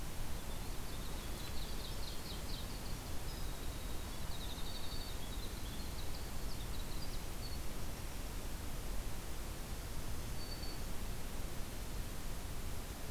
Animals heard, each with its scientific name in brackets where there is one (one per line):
Ovenbird (Seiurus aurocapilla)
Black-throated Green Warbler (Setophaga virens)
Winter Wren (Troglodytes hiemalis)